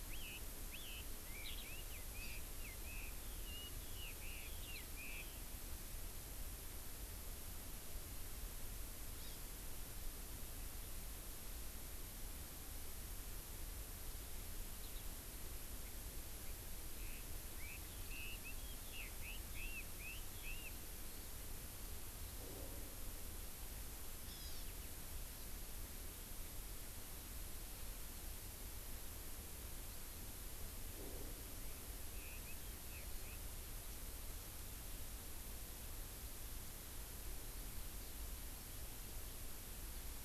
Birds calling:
Chinese Hwamei (Garrulax canorus), Eurasian Skylark (Alauda arvensis), Hawaii Amakihi (Chlorodrepanis virens)

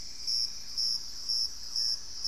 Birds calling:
Dusky-throated Antshrike (Thamnomanes ardesiacus), Thrush-like Wren (Campylorhynchus turdinus), Cinnamon-rumped Foliage-gleaner (Philydor pyrrhodes)

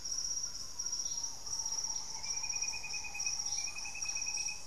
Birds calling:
Thrush-like Wren (Campylorhynchus turdinus), Green Ibis (Mesembrinibis cayennensis)

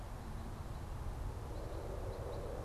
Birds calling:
Red Crossbill (Loxia curvirostra)

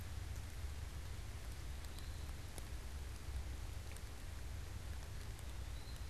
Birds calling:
Eastern Wood-Pewee (Contopus virens)

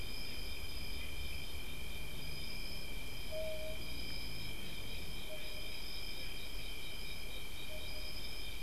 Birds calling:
unidentified bird

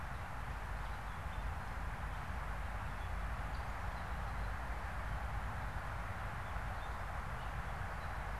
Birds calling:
Gray Catbird (Dumetella carolinensis)

